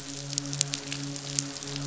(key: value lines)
label: biophony, midshipman
recorder: SoundTrap 500